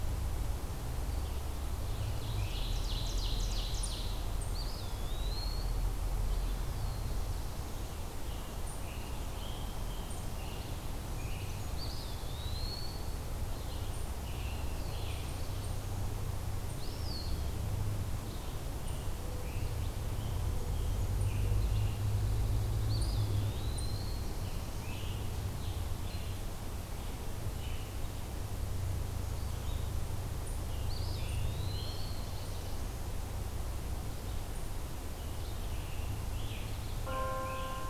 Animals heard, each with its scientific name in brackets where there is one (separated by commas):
Black-throated Blue Warbler (Setophaga caerulescens), Mourning Dove (Zenaida macroura), Eastern Wood-Pewee (Contopus virens), Ovenbird (Seiurus aurocapilla), Scarlet Tanager (Piranga olivacea)